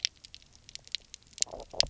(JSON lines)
{"label": "biophony, knock croak", "recorder": "SoundTrap 300"}